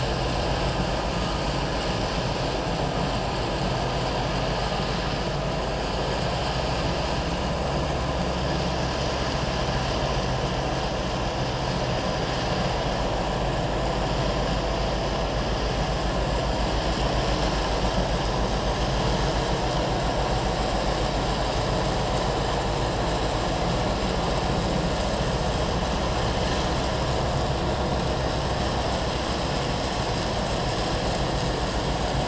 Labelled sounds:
1.2	1.4	vessel noise, 1.2 to 1.3 kHz
7.3	7.5	vessel noise, 6.1 to 6.2 kHz

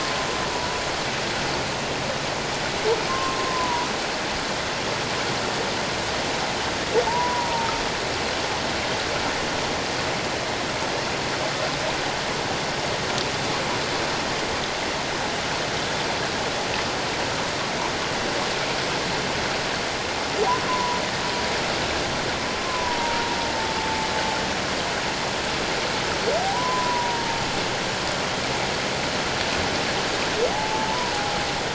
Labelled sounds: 3.1	3.9	humpback whale, 0.91 to 1.1 kHz
7.1	7.7	humpback whale, 0.84 to 1.1 kHz
20.7	21.0	humpback whale, 0.91 to 1.1 kHz
22.6	23.3	humpback whale, 0.84 to 1.2 kHz
26.5	27.4	humpback whale, 0.88 to 1.1 kHz
30.5	31.1	humpback whale, 0.78 to 1.0 kHz

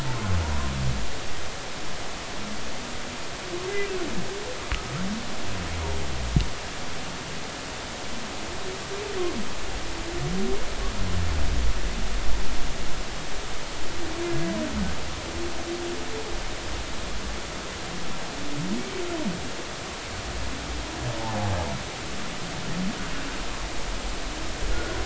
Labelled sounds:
0.4	0.7	humpback whale, 0.90 to 1.1 kHz
24.7	25.0	humpback whale, 1.4 to 1.5 kHz

